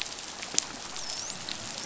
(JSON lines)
{"label": "biophony, dolphin", "recorder": "SoundTrap 500"}